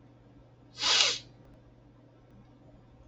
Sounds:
Sniff